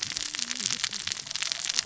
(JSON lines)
{"label": "biophony, cascading saw", "recorder": "SoundTrap 600 or HydroMoth"}